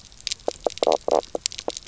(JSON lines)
{"label": "biophony, knock croak", "recorder": "SoundTrap 300"}